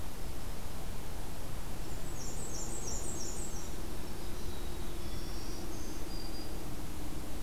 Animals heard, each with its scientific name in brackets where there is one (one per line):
Black-throated Green Warbler (Setophaga virens)
Black-capped Chickadee (Poecile atricapillus)
Black-and-white Warbler (Mniotilta varia)